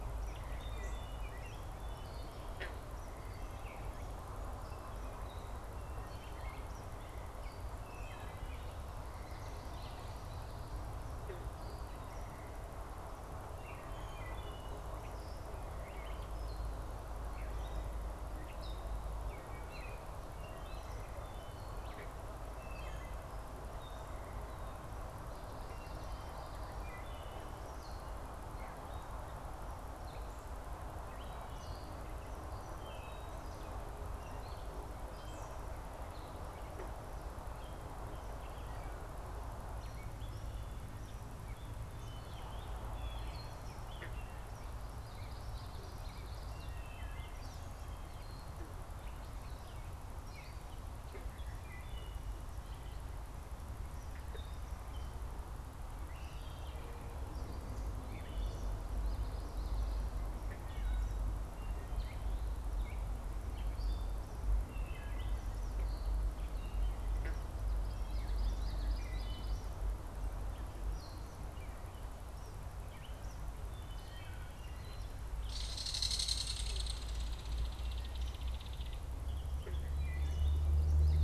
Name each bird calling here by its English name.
Gray Catbird, Wood Thrush, Common Yellowthroat, Eastern Kingbird, Belted Kingfisher